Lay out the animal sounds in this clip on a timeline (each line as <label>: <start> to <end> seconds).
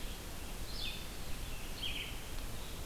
Blue-headed Vireo (Vireo solitarius): 0.0 to 2.9 seconds
Red-eyed Vireo (Vireo olivaceus): 0.0 to 2.9 seconds